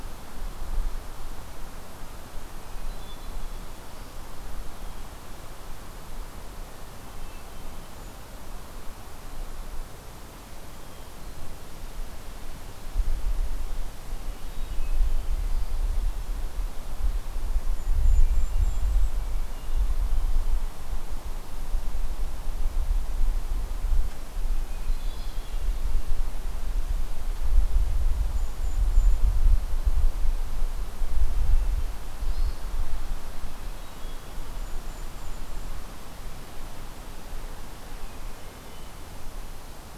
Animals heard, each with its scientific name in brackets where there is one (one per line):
Golden-crowned Kinglet (Regulus satrapa)
Hermit Thrush (Catharus guttatus)